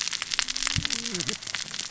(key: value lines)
label: biophony, cascading saw
recorder: SoundTrap 600 or HydroMoth